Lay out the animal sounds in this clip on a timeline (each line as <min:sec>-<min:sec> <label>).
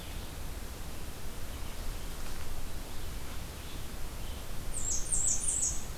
0:00.0-0:06.0 Red-eyed Vireo (Vireo olivaceus)
0:04.5-0:05.9 Blackburnian Warbler (Setophaga fusca)